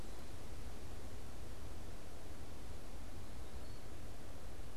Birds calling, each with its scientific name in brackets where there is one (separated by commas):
Eastern Wood-Pewee (Contopus virens)